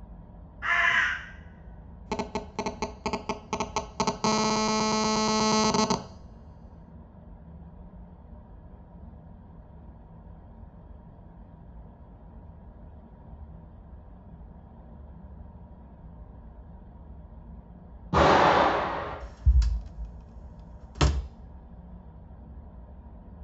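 A quiet, steady noise sits in the background. At 0.62 seconds, a bird can be heard. Then at 2.05 seconds, the sound of a telephone is audible. Later, at 18.12 seconds, an explosion is heard. Next, at 19.19 seconds, a door closes.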